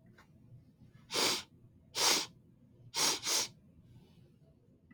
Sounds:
Sniff